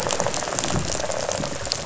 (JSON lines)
{"label": "biophony, rattle response", "recorder": "SoundTrap 500"}